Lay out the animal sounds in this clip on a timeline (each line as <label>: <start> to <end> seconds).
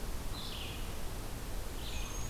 Red-eyed Vireo (Vireo olivaceus): 0.0 to 2.3 seconds
Northern Parula (Setophaga americana): 1.7 to 2.3 seconds